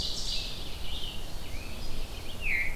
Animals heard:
Ovenbird (Seiurus aurocapilla), Red-eyed Vireo (Vireo olivaceus)

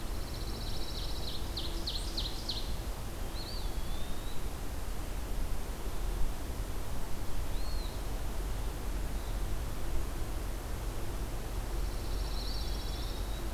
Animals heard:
Eastern Wood-Pewee (Contopus virens), Pine Warbler (Setophaga pinus), Ovenbird (Seiurus aurocapilla)

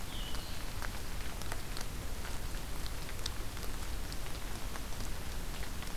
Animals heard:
Blue-headed Vireo (Vireo solitarius)

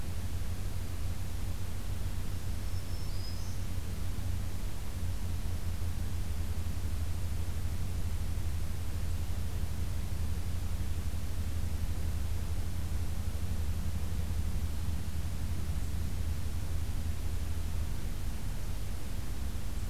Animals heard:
Black-throated Green Warbler (Setophaga virens)

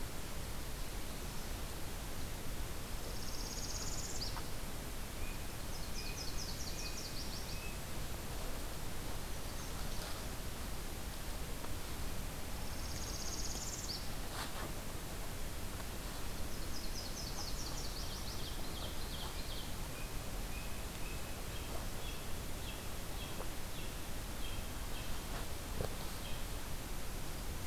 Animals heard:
Ovenbird (Seiurus aurocapilla), Nashville Warbler (Leiothlypis ruficapilla), Northern Parula (Setophaga americana), American Robin (Turdus migratorius)

